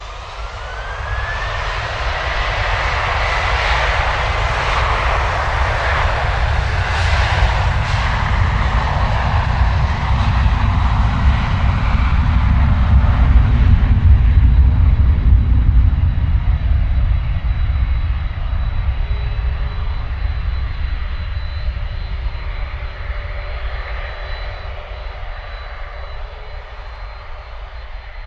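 0.0s An airplane starts loudly and takes off. 19.0s
18.9s An airplane engine is starting. 28.3s

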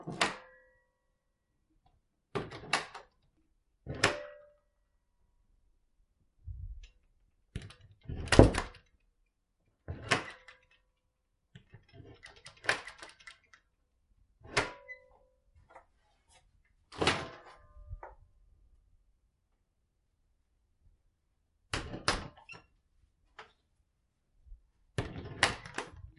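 0.1s Closet door opening and closing repeatedly. 26.2s

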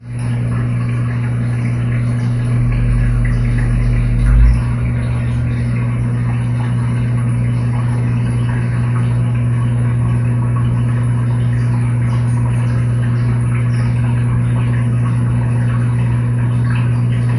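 0.0s Repeated sounds of liquid draining during a washing machine operation. 17.3s

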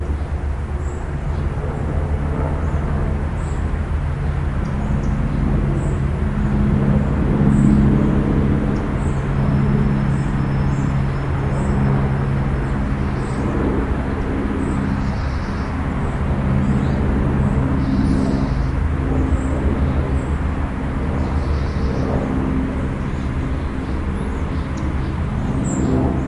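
0.0s A plane flying continuously overhead in a city. 26.3s
0.0s Birds chirping repeatedly in the distance. 26.3s
0.0s The distant sound of traffic with occasional high-pitched tram brakes. 26.3s

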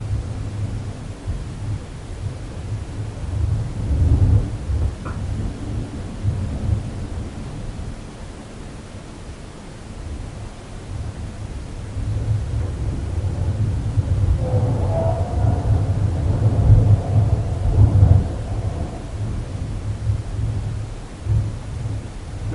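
0.0s Wind howling at varying intensities with a low, continuous hum. 22.5s

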